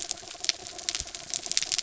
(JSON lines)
{"label": "anthrophony, mechanical", "recorder": "SoundTrap 300"}